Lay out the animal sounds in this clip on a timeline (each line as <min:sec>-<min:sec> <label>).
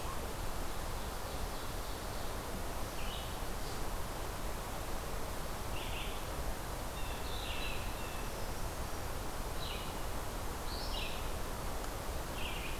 0:00.0-0:12.8 Red-eyed Vireo (Vireo olivaceus)
0:00.3-0:02.5 Ovenbird (Seiurus aurocapilla)
0:06.8-0:08.4 Blue Jay (Cyanocitta cristata)
0:07.9-0:09.2 Brown Creeper (Certhia americana)